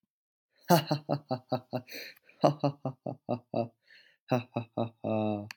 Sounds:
Laughter